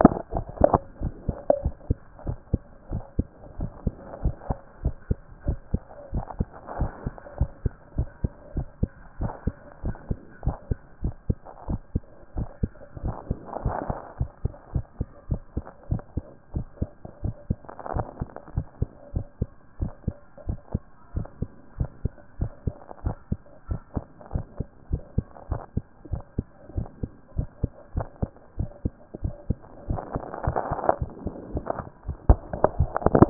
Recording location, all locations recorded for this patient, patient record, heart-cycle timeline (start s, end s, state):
tricuspid valve (TV)
aortic valve (AV)+pulmonary valve (PV)+tricuspid valve (TV)+mitral valve (MV)
#Age: Child
#Sex: Male
#Height: 123.0 cm
#Weight: 24.3 kg
#Pregnancy status: False
#Murmur: Absent
#Murmur locations: nan
#Most audible location: nan
#Systolic murmur timing: nan
#Systolic murmur shape: nan
#Systolic murmur grading: nan
#Systolic murmur pitch: nan
#Systolic murmur quality: nan
#Diastolic murmur timing: nan
#Diastolic murmur shape: nan
#Diastolic murmur grading: nan
#Diastolic murmur pitch: nan
#Diastolic murmur quality: nan
#Outcome: Normal
#Campaign: 2014 screening campaign
0.00	1.62	unannotated
1.62	1.74	S1
1.74	1.88	systole
1.88	1.98	S2
1.98	2.26	diastole
2.26	2.38	S1
2.38	2.52	systole
2.52	2.60	S2
2.60	2.90	diastole
2.90	3.02	S1
3.02	3.18	systole
3.18	3.26	S2
3.26	3.58	diastole
3.58	3.70	S1
3.70	3.84	systole
3.84	3.94	S2
3.94	4.22	diastole
4.22	4.34	S1
4.34	4.48	systole
4.48	4.58	S2
4.58	4.84	diastole
4.84	4.94	S1
4.94	5.08	systole
5.08	5.18	S2
5.18	5.46	diastole
5.46	5.58	S1
5.58	5.72	systole
5.72	5.82	S2
5.82	6.12	diastole
6.12	6.24	S1
6.24	6.38	systole
6.38	6.48	S2
6.48	6.78	diastole
6.78	6.92	S1
6.92	7.04	systole
7.04	7.14	S2
7.14	7.38	diastole
7.38	7.50	S1
7.50	7.64	systole
7.64	7.72	S2
7.72	7.96	diastole
7.96	8.08	S1
8.08	8.22	systole
8.22	8.32	S2
8.32	8.56	diastole
8.56	8.66	S1
8.66	8.80	systole
8.80	8.90	S2
8.90	9.20	diastole
9.20	9.32	S1
9.32	9.46	systole
9.46	9.54	S2
9.54	9.84	diastole
9.84	9.96	S1
9.96	10.08	systole
10.08	10.18	S2
10.18	10.44	diastole
10.44	10.56	S1
10.56	10.70	systole
10.70	10.78	S2
10.78	11.02	diastole
11.02	11.14	S1
11.14	11.28	systole
11.28	11.38	S2
11.38	11.68	diastole
11.68	11.80	S1
11.80	11.94	systole
11.94	12.02	S2
12.02	12.36	diastole
12.36	12.48	S1
12.48	12.62	systole
12.62	12.70	S2
12.70	13.04	diastole
13.04	13.16	S1
13.16	13.28	systole
13.28	13.38	S2
13.38	13.64	diastole
13.64	13.76	S1
13.76	13.88	systole
13.88	13.98	S2
13.98	14.18	diastole
14.18	14.30	S1
14.30	14.42	systole
14.42	14.52	S2
14.52	14.74	diastole
14.74	14.84	S1
14.84	14.98	systole
14.98	15.08	S2
15.08	15.30	diastole
15.30	15.40	S1
15.40	15.56	systole
15.56	15.64	S2
15.64	15.90	diastole
15.90	16.02	S1
16.02	16.16	systole
16.16	16.24	S2
16.24	16.54	diastole
16.54	16.66	S1
16.66	16.80	systole
16.80	16.90	S2
16.90	17.22	diastole
17.22	17.34	S1
17.34	17.48	systole
17.48	17.58	S2
17.58	17.94	diastole
17.94	18.06	S1
18.06	18.20	systole
18.20	18.28	S2
18.28	18.56	diastole
18.56	18.66	S1
18.66	18.80	systole
18.80	18.90	S2
18.90	19.14	diastole
19.14	19.26	S1
19.26	19.40	systole
19.40	19.48	S2
19.48	19.80	diastole
19.80	19.92	S1
19.92	20.06	systole
20.06	20.14	S2
20.14	20.48	diastole
20.48	20.58	S1
20.58	20.72	systole
20.72	20.82	S2
20.82	21.14	diastole
21.14	21.26	S1
21.26	21.40	systole
21.40	21.50	S2
21.50	21.78	diastole
21.78	21.90	S1
21.90	22.04	systole
22.04	22.12	S2
22.12	22.40	diastole
22.40	22.52	S1
22.52	22.66	systole
22.66	22.74	S2
22.74	23.04	diastole
23.04	23.16	S1
23.16	23.30	systole
23.30	23.40	S2
23.40	23.70	diastole
23.70	23.80	S1
23.80	23.94	systole
23.94	24.04	S2
24.04	24.34	diastole
24.34	24.46	S1
24.46	24.58	systole
24.58	24.68	S2
24.68	24.90	diastole
24.90	25.02	S1
25.02	25.16	systole
25.16	25.26	S2
25.26	25.50	diastole
25.50	25.62	S1
25.62	25.76	systole
25.76	25.84	S2
25.84	26.10	diastole
26.10	26.22	S1
26.22	26.36	systole
26.36	26.46	S2
26.46	26.76	diastole
26.76	26.88	S1
26.88	27.02	systole
27.02	27.10	S2
27.10	27.36	diastole
27.36	27.48	S1
27.48	27.62	systole
27.62	27.70	S2
27.70	27.94	diastole
27.94	28.06	S1
28.06	28.20	systole
28.20	28.30	S2
28.30	28.58	diastole
28.58	28.70	S1
28.70	28.84	systole
28.84	28.92	S2
28.92	29.22	diastole
29.22	29.34	S1
29.34	29.48	systole
29.48	29.58	S2
29.58	29.88	diastole
29.88	33.30	unannotated